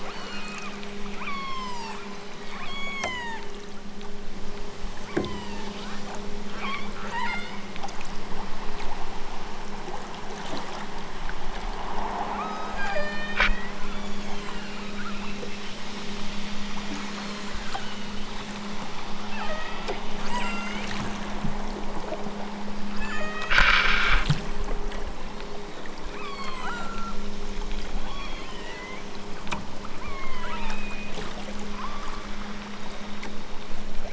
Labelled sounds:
0.1	0.8	killer whale, southern Alaska resident, 0.74 to 4.6 kHz
1.2	3.5	killer whale, southern Alaska resident, 0.55 to 8.0 kHz
5.0	5.7	killer whale, southern Alaska resident, 0.69 to 8.0 kHz
6.5	7.7	killer whale, southern Alaska resident, 0.60 to 6.2 kHz
12.3	14.7	killer whale, southern Alaska resident, 0.92 to 7.4 kHz
15.0	15.6	killer whale, southern Alaska resident, 0.83 to 3.2 kHz
17.0	17.8	killer whale, southern Alaska resident, 2.5 to 5.1 kHz
19.3	20.9	killer whale, southern Alaska resident, 1.1 to 6.4 kHz
22.9	23.5	killer whale, southern Alaska resident, 0.88 to 6.8 kHz
26.1	27.3	killer whale, southern Alaska resident, 0.64 to 8.0 kHz
28.0	29.0	killer whale, southern Alaska resident, 0.64 to 7.2 kHz
30.0	31.1	killer whale, southern Alaska resident, 0.64 to 4.0 kHz
31.7	32.4	killer whale, southern Alaska resident, 0.69 to 8.0 kHz

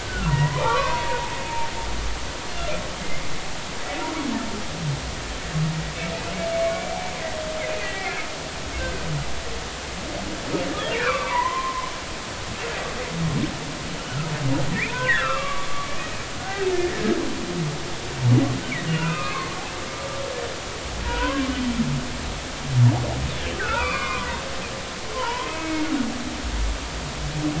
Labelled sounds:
0.0	1.3	humpback whale, 0.80 to 2.7 kHz
3.0	3.2	humpback whale, 2.0 to 2.2 kHz
6.5	7.2	humpback whale, 2.1 to 2.4 kHz
7.8	8.1	humpback whale, 1.9 to 2.1 kHz
10.9	11.9	humpback whale, 0.90 to 2.8 kHz
14.7	15.7	humpback whale, 0.93 to 2.8 kHz
16.0	17.2	humpback whale, 1.4 to 2.6 kHz
18.9	19.6	humpback whale, 0.93 to 2.9 kHz
21.0	21.5	humpback whale, 0.90 to 1.6 kHz
23.6	24.4	humpback whale, 0.86 to 5.1 kHz
25.1	25.9	humpback whale, 0.86 to 3.1 kHz

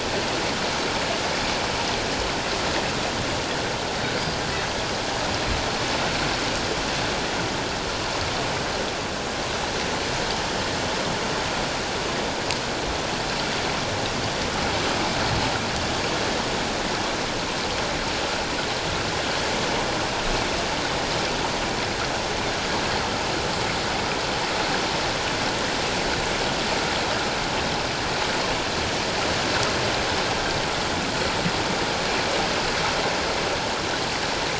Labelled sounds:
4.2	4.4	killer whale, northern resident, G clan, 4.7 to 4.8 kHz

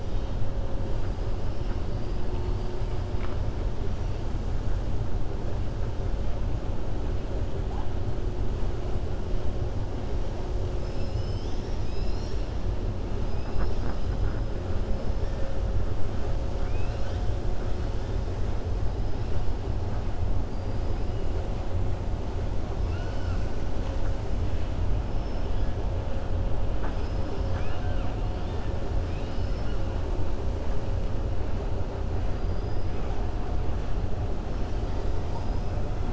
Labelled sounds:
1.8	2.2	killer whale, 4.5 to 5.1 kHz
13.3	14.1	killer whale, 4.1 to 5.7 kHz
16.5	17.3	killer whale, 1.5 to 7.2 kHz
26.9	28.1	killer whale, 0.73 to 6.1 kHz
29.0	29.8	killer whale, 2.3 to 5.9 kHz
32.3	32.9	killer whale, 4.7 to 5.1 kHz

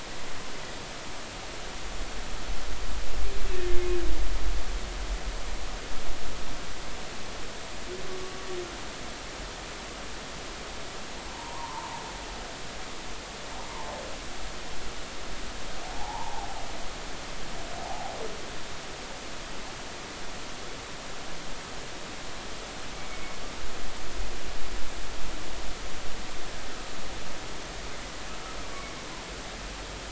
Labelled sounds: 3.5	3.8	humpback whale, 1.7 to 1.9 kHz
11.3	11.9	humpback whale, 0.80 to 1.1 kHz
15.8	16.5	humpback whale, 0.80 to 1.1 kHz
17.8	18.1	humpback whale, 0.80 to 0.93 kHz
22.9	23.4	humpback whale, 2.2 to 2.3 kHz

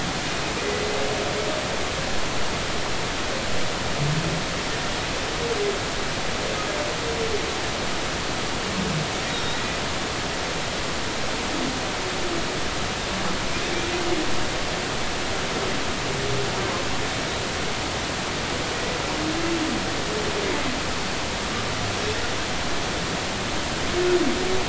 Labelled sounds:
9.3	9.8	humpback whale, 1.9 to 3.9 kHz

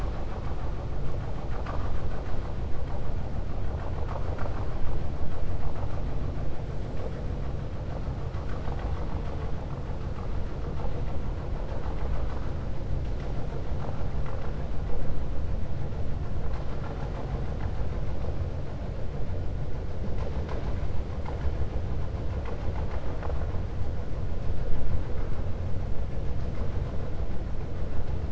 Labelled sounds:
16.7	17.3	vessel noise, 0.59 to 2.4 kHz

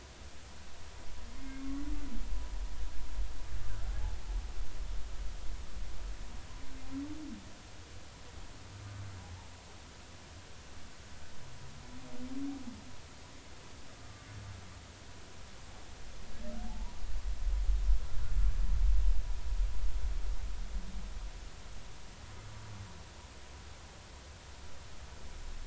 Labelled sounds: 1.4	1.8	humpback whale, 1.1 to 2.2 kHz
9.2	9.5	humpback whale, 0.80 to 0.96 kHz
17.7	18.0	humpback whale, 0.80 to 1.0 kHz

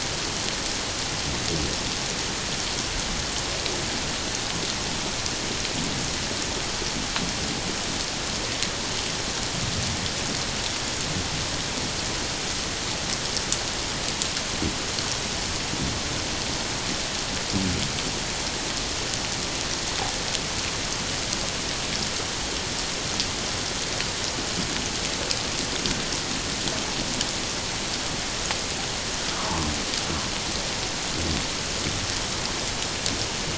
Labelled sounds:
29.3	29.7	humpback whale, 0.97 to 1.3 kHz

